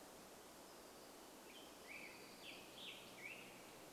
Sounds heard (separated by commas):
Black-headed Grosbeak song